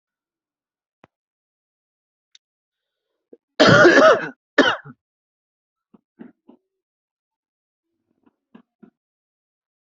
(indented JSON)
{
  "expert_labels": [
    {
      "quality": "good",
      "cough_type": "dry",
      "dyspnea": false,
      "wheezing": false,
      "stridor": false,
      "choking": false,
      "congestion": false,
      "nothing": true,
      "diagnosis": "healthy cough",
      "severity": "pseudocough/healthy cough"
    }
  ],
  "age": 27,
  "gender": "male",
  "respiratory_condition": false,
  "fever_muscle_pain": false,
  "status": "symptomatic"
}